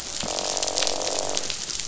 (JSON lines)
{"label": "biophony, croak", "recorder": "SoundTrap 500"}